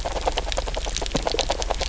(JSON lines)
{"label": "biophony, knock croak", "recorder": "SoundTrap 300"}